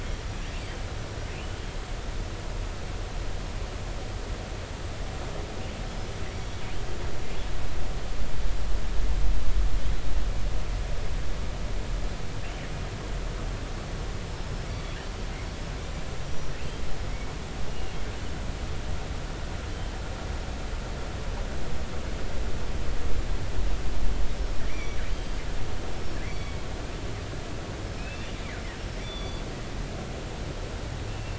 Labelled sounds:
6.3	6.6	killer whale, northern resident, G clan, GI subclan, call N23i, 3.3 to 3.5 kHz
14.7	15.0	killer whale, northern resident, G clan, GI subclan, call N23i, 2.1 to 3.5 kHz
16.2	16.5	killer whale, northern resident, G clan, GI subclan, call N23i, 5.8 to 5.9 kHz
18.7	18.9	killer whale, northern resident, G clan, GI subclan, call N23i, 2.8 to 3.0 kHz
24.7	26.6	killer whale, northern resident, G clan, GI subclan, call N23i, 1.9 to 5.9 kHz
28.0	28.3	killer whale, northern resident, G clan, GI subclan, call N24i, 2.3 to 2.8 kHz
29.0	29.4	killer whale, northern resident, G clan, GI subclan, call N23i, 3.4 to 5.8 kHz
31.1	31.3	killer whale, northern resident, G clan, GI subclan, call N24i, 2.6 to 2.9 kHz

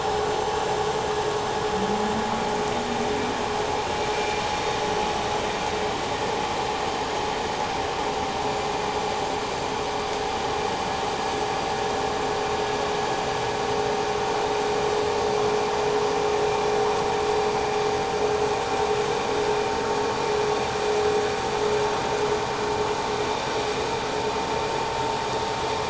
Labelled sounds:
4.1	5.0	vessel noise, 2.3 to 6.0 kHz

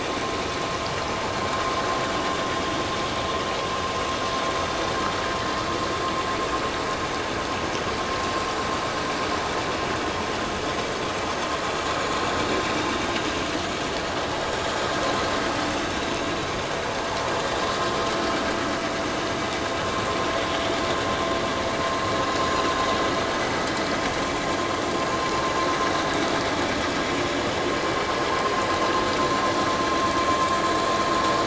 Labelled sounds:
22.5	22.7	vessel noise, 6.7 to 6.9 kHz

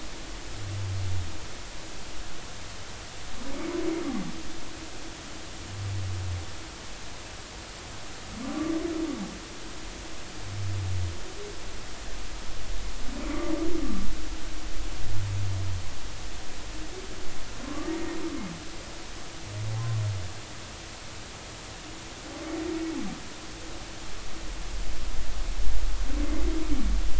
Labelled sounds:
8.4	8.7	humpback whale, 1.1 to 1.3 kHz
13.3	13.5	humpback whale, 2.0 to 2.1 kHz
17.6	17.9	humpback whale, 1.0 to 1.2 kHz

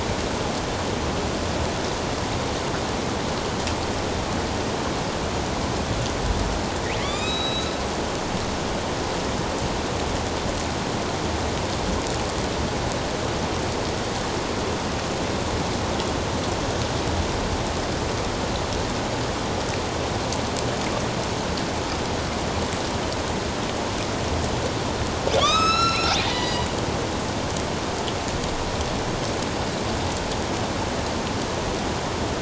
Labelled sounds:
7.0	7.7	killer whale, northern resident, A clan, AB subclan, 1.1 to 5.2 kHz
25.4	26.7	killer whale, northern resident, A clan, AB subclan, 0.81 to 8.0 kHz

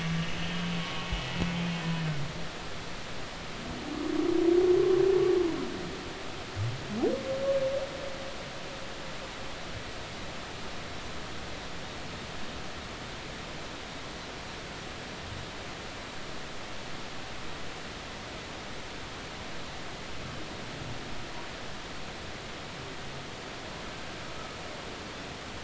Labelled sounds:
0.0	1.1	humpback whale, 1.1 to 3.3 kHz

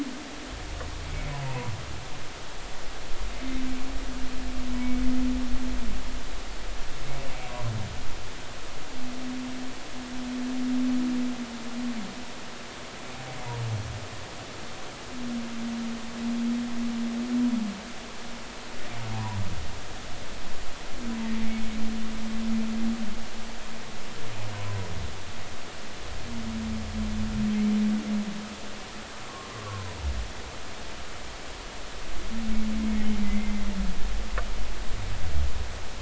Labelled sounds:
1.4	1.7	humpback whale, 0.90 to 1.1 kHz
24.5	24.8	humpback whale, 0.96 to 1.1 kHz
29.3	29.9	humpback whale, 0.93 to 1.2 kHz
33.2	33.6	humpback whale, 1.9 to 2.2 kHz

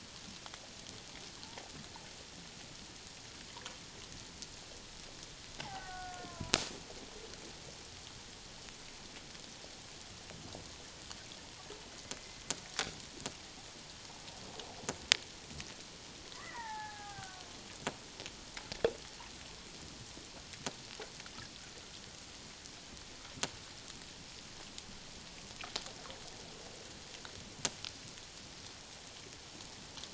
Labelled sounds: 5.6	6.6	killer whale, Bigg's (transient), 0.78 to 1.6 kHz
16.3	17.5	killer whale, Bigg's (transient), 0.78 to 2.1 kHz

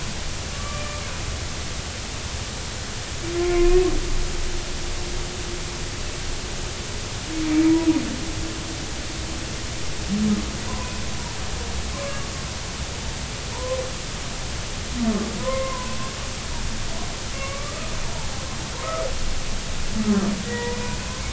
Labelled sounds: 0.5	1.0	humpback whale, 1.1 to 2.4 kHz
3.4	3.8	humpback whale, 0.99 to 1.1 kHz
10.7	11.0	humpback whale, 0.93 to 1.1 kHz
11.9	12.2	humpback whale, 0.99 to 1.2 kHz
13.5	13.8	humpback whale, 0.90 to 1.1 kHz
15.4	16.0	humpback whale, 0.90 to 2.2 kHz
17.3	17.9	humpback whale, 1.0 to 2.8 kHz
20.4	20.8	humpback whale, 0.90 to 2.0 kHz

